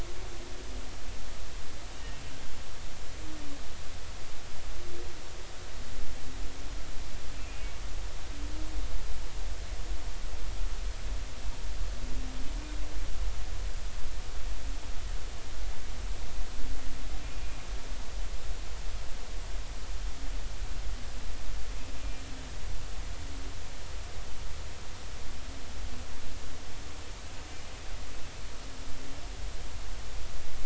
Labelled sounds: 7.4	7.7	humpback whale, 2.3 to 2.6 kHz

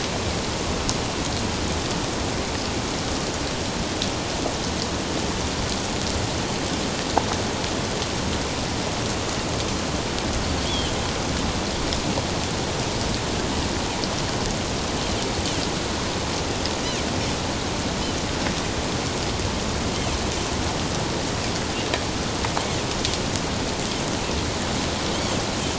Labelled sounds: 10.7	10.9	Pacific white-sided dolphin, 2.9 to 3.5 kHz

